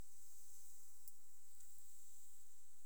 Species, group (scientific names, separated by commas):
Leptophyes punctatissima, Orthoptera